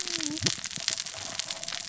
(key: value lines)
label: biophony, cascading saw
recorder: SoundTrap 600 or HydroMoth